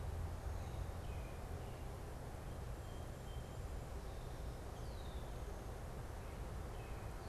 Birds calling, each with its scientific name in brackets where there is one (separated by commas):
American Robin (Turdus migratorius), Red-winged Blackbird (Agelaius phoeniceus)